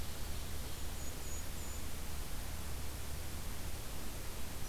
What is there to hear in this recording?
Golden-crowned Kinglet